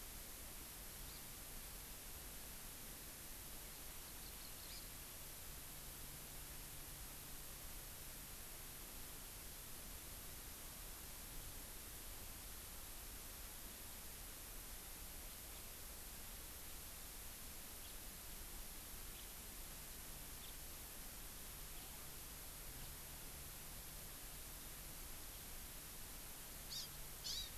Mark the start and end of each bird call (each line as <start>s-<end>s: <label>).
1.0s-1.2s: Hawaii Amakihi (Chlorodrepanis virens)
3.9s-4.8s: Hawaii Amakihi (Chlorodrepanis virens)
17.8s-18.0s: House Finch (Haemorhous mexicanus)
19.1s-19.3s: House Finch (Haemorhous mexicanus)
20.4s-20.5s: House Finch (Haemorhous mexicanus)
26.7s-26.9s: Hawaii Amakihi (Chlorodrepanis virens)
27.2s-27.5s: Hawaii Amakihi (Chlorodrepanis virens)